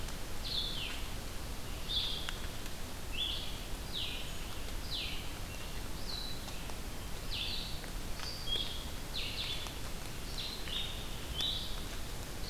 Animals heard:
Blue-headed Vireo (Vireo solitarius)

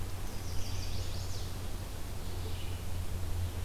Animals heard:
Chestnut-sided Warbler (Setophaga pensylvanica)

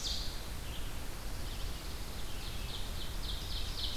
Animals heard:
Red-eyed Vireo (Vireo olivaceus)
Pine Warbler (Setophaga pinus)
Ovenbird (Seiurus aurocapilla)

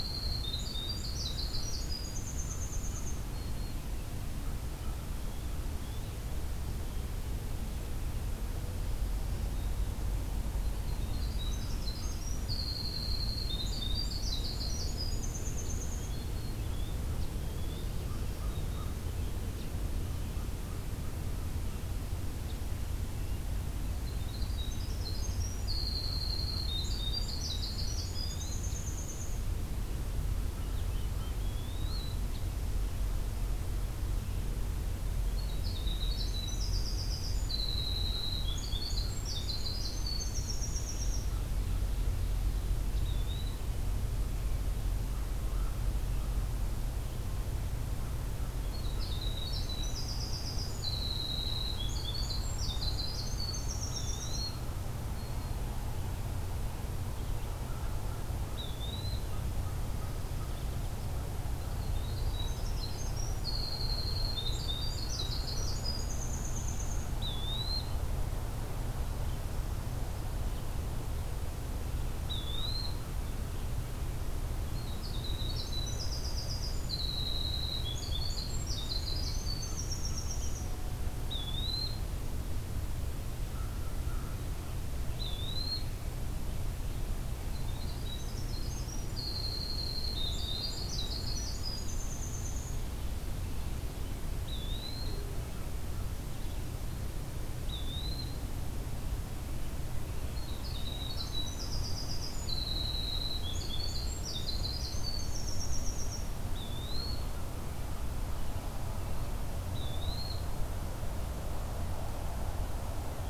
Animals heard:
Eastern Wood-Pewee (Contopus virens)
Black-throated Green Warbler (Setophaga virens)
American Crow (Corvus brachyrhynchos)
Winter Wren (Troglodytes hiemalis)

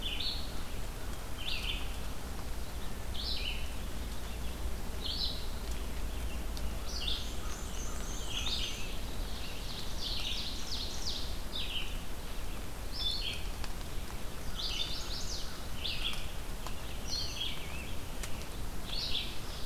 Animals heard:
Chestnut-sided Warbler (Setophaga pensylvanica)
Ovenbird (Seiurus aurocapilla)
Rose-breasted Grosbeak (Pheucticus ludovicianus)
Red-eyed Vireo (Vireo olivaceus)
Black-and-white Warbler (Mniotilta varia)

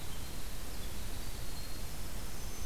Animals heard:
Black-throated Green Warbler (Setophaga virens)
Winter Wren (Troglodytes hiemalis)

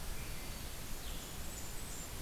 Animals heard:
Blackburnian Warbler (Setophaga fusca)
Black-throated Green Warbler (Setophaga virens)
Blue-headed Vireo (Vireo solitarius)
Swainson's Thrush (Catharus ustulatus)

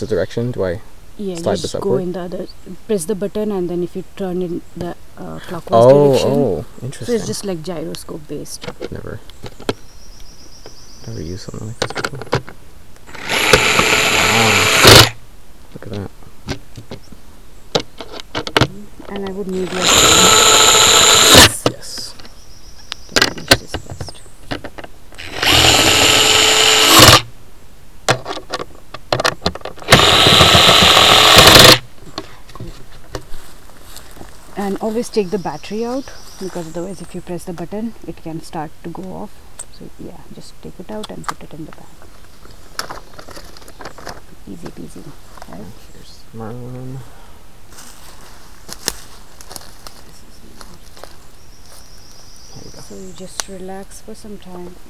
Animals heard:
Blackburnian Warbler (Setophaga fusca)

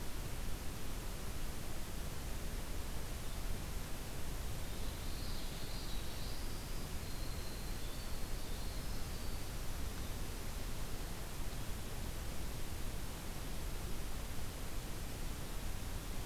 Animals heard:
Common Yellowthroat (Geothlypis trichas)
Winter Wren (Troglodytes hiemalis)

